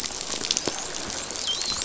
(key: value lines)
label: biophony, dolphin
recorder: SoundTrap 500